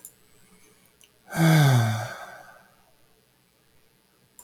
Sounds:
Sigh